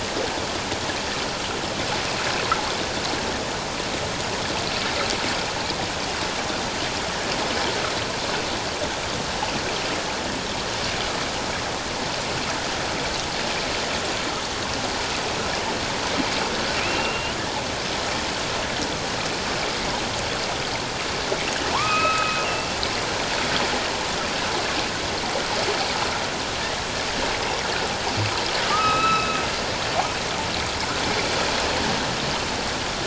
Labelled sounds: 16.8	17.4	killer whale, northern resident, A clan, AB subclan, H01 pod, 2.3 to 3.0 kHz
21.7	22.8	killer whale, northern resident, A clan, AB subclan, H01 pod, 0.81 to 2.9 kHz
28.7	29.4	killer whale, northern resident, A clan, AB subclan, H01 pod, 1.1 to 4.0 kHz

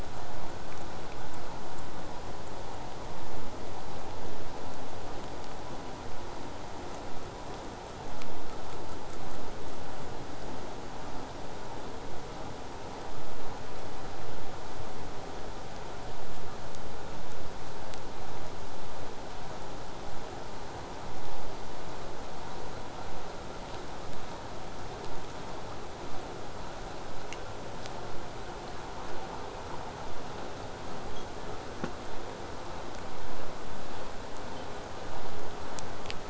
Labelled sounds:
6.6	9.8	killer whale, southern resident, 1.6 to 8.0 kHz

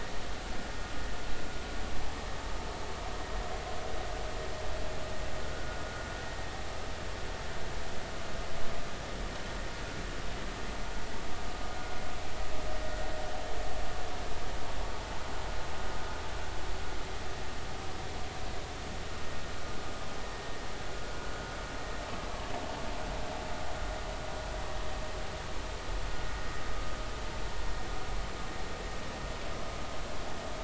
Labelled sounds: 5.5	5.8	vessel noise, 1.4 to 1.5 kHz

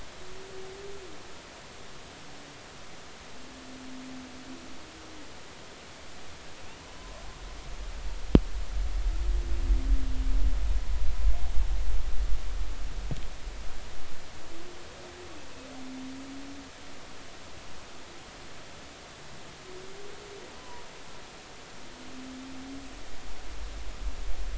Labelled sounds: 6.8	7.2	humpback whale, 0.96 to 1.2 kHz
20.6	20.8	humpback whale, 0.93 to 1.1 kHz

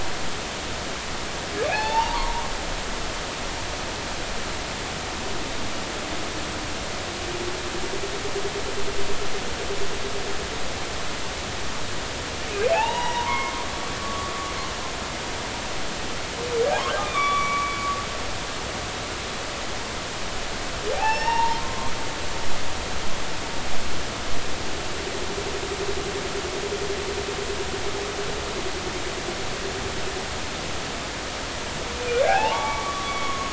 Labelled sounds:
1.6	2.5	humpback whale, 0.80 to 4.6 kHz
12.7	14.3	humpback whale, 0.80 to 3.9 kHz
16.7	17.7	humpback whale, 0.80 to 3.6 kHz
20.9	21.9	humpback whale, 0.80 to 5.6 kHz
32.2	33.5	humpback whale, 0.80 to 6.7 kHz

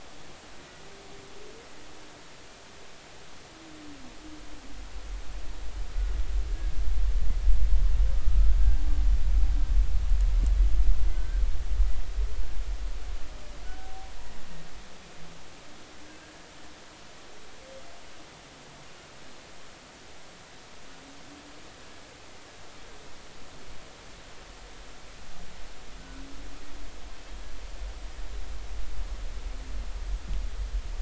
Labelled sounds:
8.1	8.4	humpback whale, 1.2 to 1.3 kHz
11.1	11.4	humpback whale, 1.5 to 1.6 kHz
13.6	14.1	humpback whale, 0.80 to 1.6 kHz
16.0	16.3	humpback whale, 1.5 to 1.7 kHz

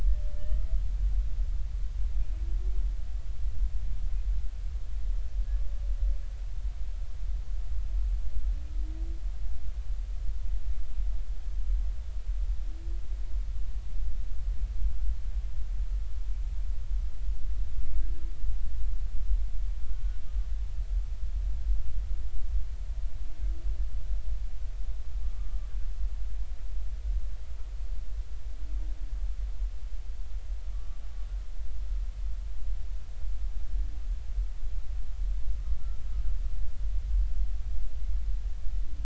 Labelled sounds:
0.3	0.7	humpback whale, 1.7 to 3.2 kHz
25.2	25.5	humpback whale, 1.15 to 1.25 kHz
30.7	31.0	humpback whale, 1.1 to 1.3 kHz

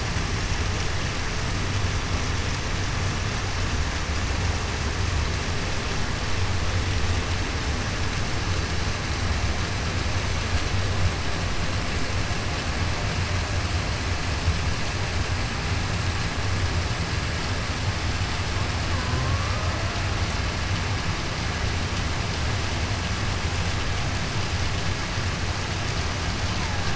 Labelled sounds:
19.0	19.6	killer whale, Bigg's (transient), 0.98 to 1.3 kHz

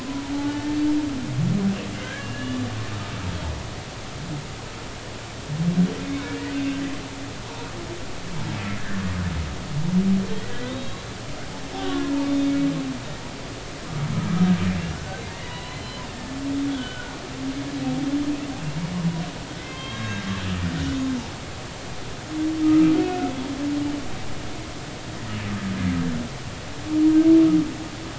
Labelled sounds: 0.1	0.8	humpback whale, 0.80 to 1.8 kHz
1.9	2.6	humpback whale, 1.5 to 2.9 kHz
6.0	6.4	humpback whale, 2.0 to 2.4 kHz
10.7	12.5	humpback whale, 0.99 to 4.0 kHz
14.9	17.1	humpback whale, 0.93 to 4.2 kHz
19.6	20.2	humpback whale, 0.99 to 3.8 kHz
22.6	23.3	humpback whale, 1.2 to 1.5 kHz

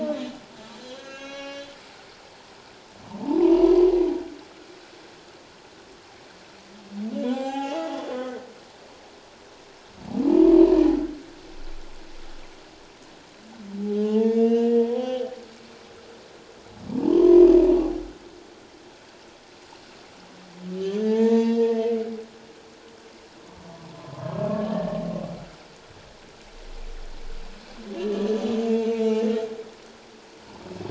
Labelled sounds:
0.8	1.7	humpback whale, 1.1 to 6.4 kHz
3.4	3.9	humpback whale, 0.88 to 6.0 kHz
7.2	8.5	humpback whale, 0.78 to 7.6 kHz
14.0	15.3	humpback whale, 0.78 to 5.1 kHz
16.9	17.5	humpback whale, 0.78 to 1.1 kHz
20.8	22.0	humpback whale, 0.81 to 6.0 kHz
24.0	25.0	humpback whale, 1.0 to 1.8 kHz
28.0	28.3	humpback whale, 1.7 to 1.9 kHz
28.9	29.3	humpback whale, 0.81 to 2.9 kHz

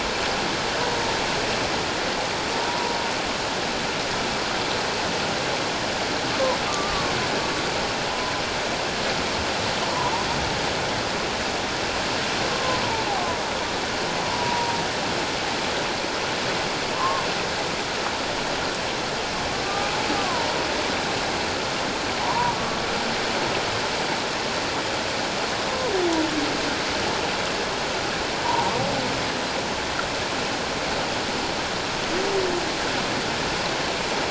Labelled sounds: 2.7	2.9	humpback whale, 0.88 to 1.0 kHz
6.7	7.1	humpback whale, 1.1 to 1.2 kHz
9.8	10.1	humpback whale, 0.88 to 1.2 kHz
12.5	13.4	humpback whale, 0.94 to 1.2 kHz
14.3	14.8	humpback whale, 0.84 to 1.0 kHz
16.9	17.2	humpback whale, 0.97 to 1.2 kHz
19.6	20.5	humpback whale, 0.88 to 1.2 kHz
22.2	22.8	humpback whale, 0.81 to 1.2 kHz
28.4	28.8	humpback whale, 0.78 to 1.2 kHz

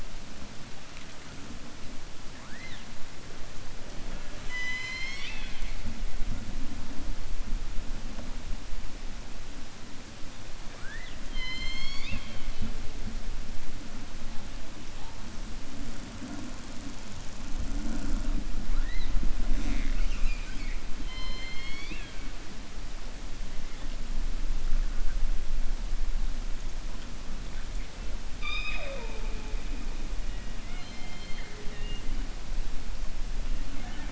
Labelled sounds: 4.0	5.8	killer whale, 0.61 to 7.6 kHz
11.2	12.7	killer whale, 0.30 to 7.4 kHz
21.0	22.2	killer whale, 1.0 to 6.5 kHz
28.3	29.5	killer whale, 0.45 to 5.1 kHz

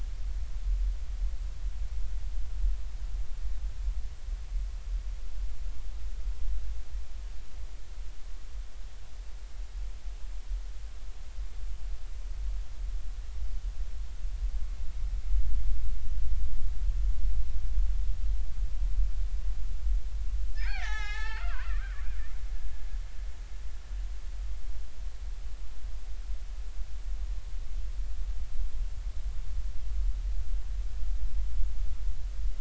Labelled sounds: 20.5	21.8	killer whale, Bigg's (transient), 0.80 to 6.5 kHz

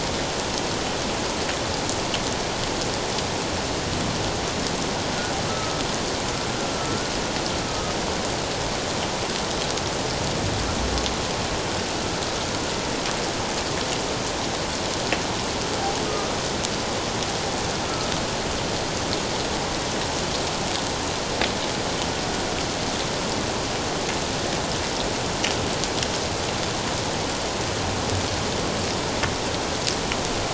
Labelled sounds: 5.5	5.8	humpback whale, 1.2 to 1.4 kHz
6.8	7.9	humpback whale, 1.2 to 1.5 kHz
16.1	16.3	humpback whale, 1.2 to 1.3 kHz

